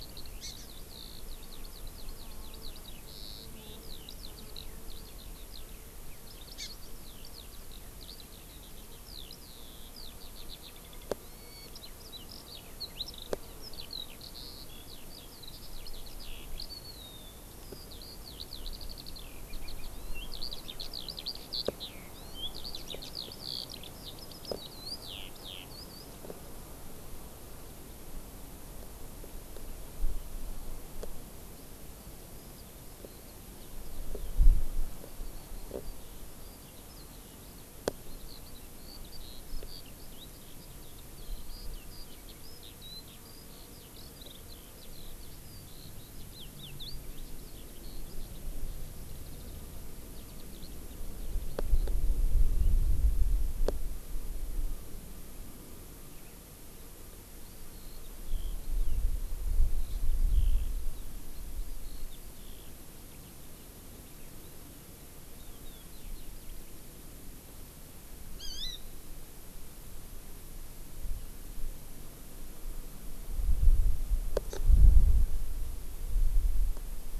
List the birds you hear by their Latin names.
Alauda arvensis, Chlorodrepanis virens